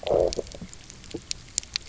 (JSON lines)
{"label": "biophony, low growl", "recorder": "SoundTrap 300"}